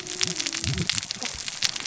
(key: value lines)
label: biophony, cascading saw
recorder: SoundTrap 600 or HydroMoth